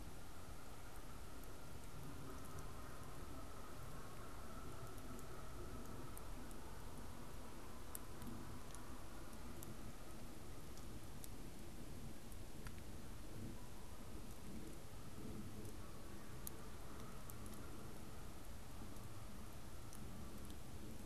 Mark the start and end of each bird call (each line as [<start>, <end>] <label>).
[0.00, 21.00] Canada Goose (Branta canadensis)